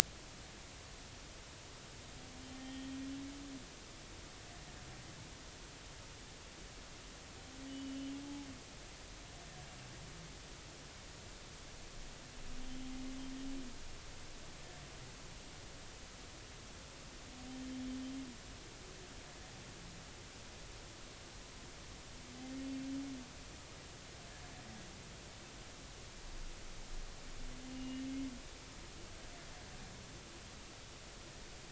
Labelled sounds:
2.6	2.9	humpback whale, 1.8 to 3.2 kHz
7.7	8.2	humpback whale, 2.9 to 3.1 kHz
27.7	28.0	humpback whale, 2.8 to 2.9 kHz

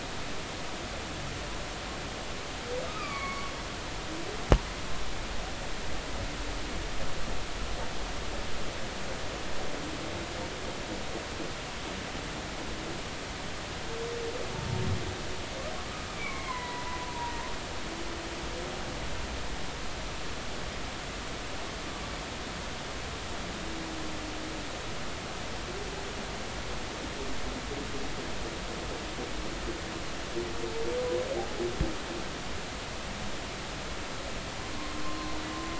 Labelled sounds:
2.8	3.5	humpback whale, 1.1 to 4.6 kHz
16.1	17.0	humpback whale, 0.90 to 2.4 kHz
18.1	18.4	humpback whale, 0.90 to 0.99 kHz
35.0	35.3	humpback whale, 0.99 to 1.2 kHz

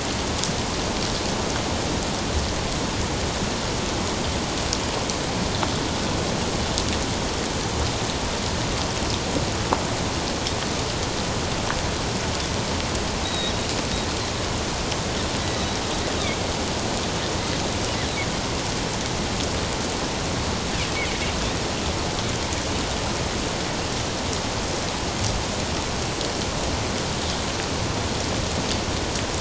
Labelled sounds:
13.2	13.6	Pacific white-sided dolphin, 3.7 to 3.9 kHz
15.4	15.8	Pacific white-sided dolphin, 1.9 to 4.0 kHz

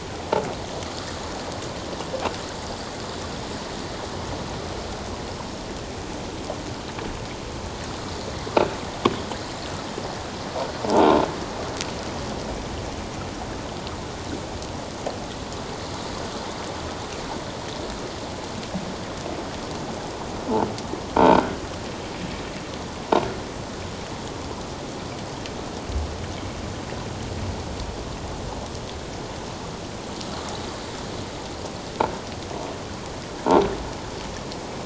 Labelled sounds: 21.2	21.4	croaking sound likely from a nearby submerged object, 1.5 to 1.6 kHz

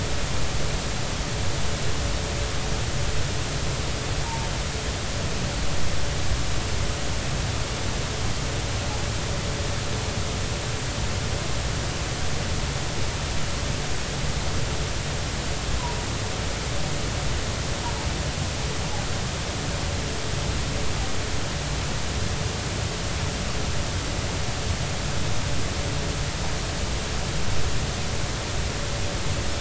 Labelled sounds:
4.2	4.5	humpback whale, 0.83 to 0.99 kHz

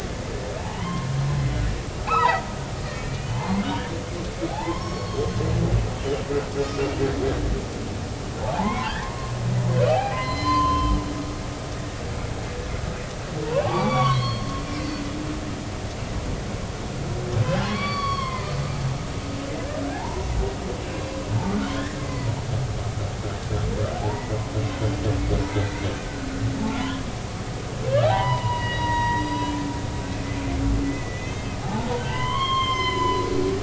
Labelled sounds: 2.0	5.3	humpback whale, 0.80 to 5.6 kHz
8.4	9.3	humpback whale, 0.80 to 2.4 kHz
9.9	10.9	humpback whale, 0.80 to 4.2 kHz
13.4	14.5	humpback whale, 0.80 to 4.7 kHz
17.6	18.5	humpback whale, 0.93 to 4.6 kHz
19.9	20.3	humpback whale, 0.80 to 1.0 kHz
21.7	22.3	humpback whale, 0.90 to 4.6 kHz
24.0	24.4	humpback whale, 0.80 to 2.0 kHz
25.5	25.9	humpback whale, 1.9 to 2.2 kHz
26.8	27.0	humpback whale, 2.9 to 3.5 kHz
28.0	29.6	humpback whale, 0.80 to 5.0 kHz
30.8	33.2	humpback whale, 0.80 to 5.3 kHz

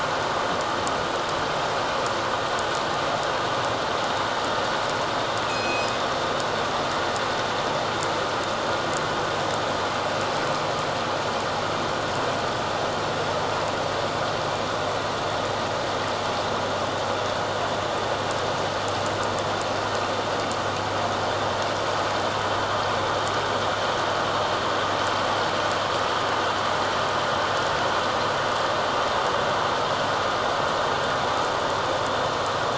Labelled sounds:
5.5	5.9	killer whale, northern resident, G clan, 2.4 to 6.8 kHz

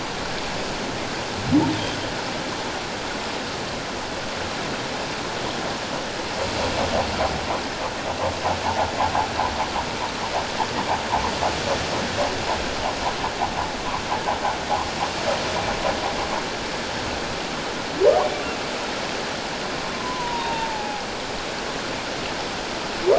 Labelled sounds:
19.9	21.0	humpback whale, 0.78 to 1.1 kHz

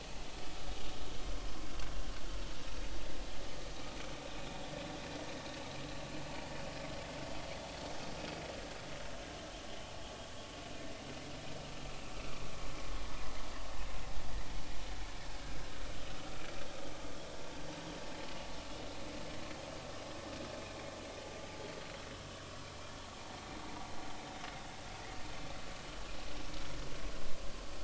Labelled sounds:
7.5	7.8	vessel noise, 3.3 to 3.5 kHz

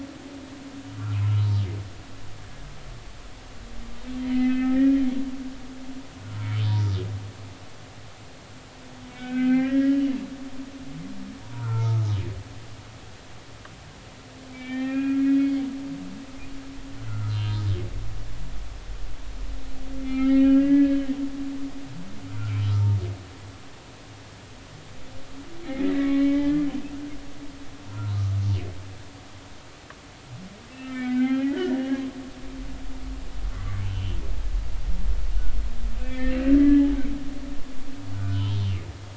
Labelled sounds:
1.2	1.5	humpback whale, 1.2 to 1.4 kHz
4.2	4.9	humpback whale, 1.2 to 4.1 kHz
6.6	6.9	humpback whale, 0.90 to 5.2 kHz
9.1	10.0	humpback whale, 1.2 to 3.0 kHz
11.4	12.1	humpback whale, 0.86 to 1.5 kHz
14.5	15.6	humpback whale, 1.3 to 3.2 kHz
17.0	17.6	humpback whale, 1.2 to 4.1 kHz
20.0	21.0	humpback whale, 1.2 to 3.3 kHz
22.6	22.9	humpback whale, 1.2 to 1.4 kHz
25.7	26.6	humpback whale, 1.1 to 3.3 kHz
27.9	28.2	humpback whale, 0.90 to 1.4 kHz
30.7	32.0	humpback whale, 1.4 to 3.2 kHz
33.5	34.2	humpback whale, 1.1 to 3.2 kHz
36.0	36.9	humpback whale, 1.6 to 3.2 kHz
38.1	38.6	humpback whale, 0.86 to 3.4 kHz

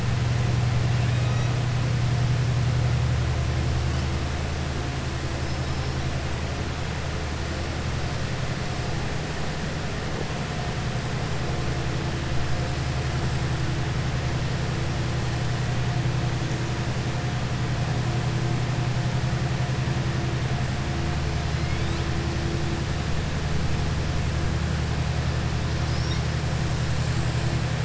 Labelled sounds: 5.4	6.0	killer whale, southern resident, 5.1 to 5.6 kHz

